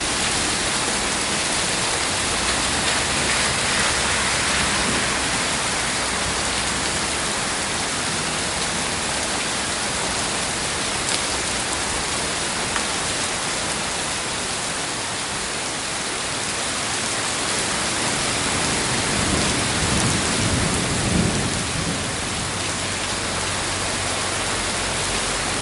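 Heavy rain repeatedly hits the ground outside. 0:00.0 - 0:25.6
Water hits the ground heavily during rain. 0:11.0 - 0:11.2
Water hits the ground heavily during rain. 0:12.7 - 0:12.9
Wind increasing in speed and loudness during a storm. 0:17.3 - 0:21.8

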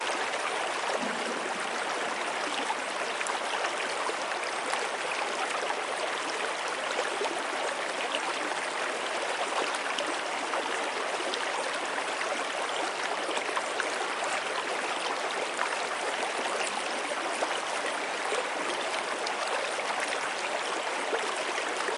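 A thick, bubbly river flows softly, its gentle stream cascading over smooth rocks in a rhythmic and soothing melody. 0:00.0 - 0:22.0

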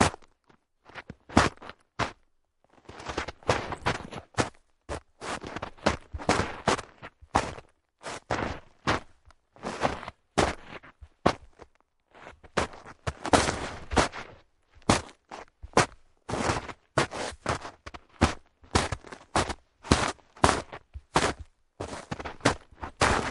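Heavy boots crunching snow in a repeating pattern. 0:00.0 - 0:23.3

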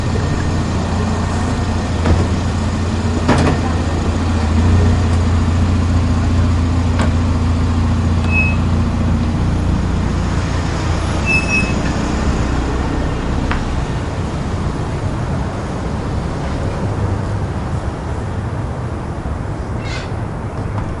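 A steady engine runs nearby. 0:00.0 - 0:13.2
Hitting sound nearby. 0:01.9 - 0:02.4
Hitting sound nearby. 0:03.2 - 0:03.7
Hitting sound nearby. 0:07.0 - 0:07.2
A door opens without oiling. 0:08.3 - 0:08.7
Doors opening repeatedly without oil. 0:11.3 - 0:11.7
A thump is heard. 0:13.4 - 0:13.6
An engine is gradually slowing down. 0:13.7 - 0:21.0
A strong grinding sound nearby. 0:19.9 - 0:20.2

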